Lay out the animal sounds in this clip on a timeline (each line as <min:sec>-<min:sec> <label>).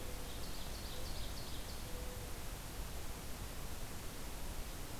0:00.1-0:01.8 Ovenbird (Seiurus aurocapilla)